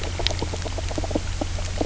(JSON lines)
{"label": "biophony, knock croak", "recorder": "SoundTrap 300"}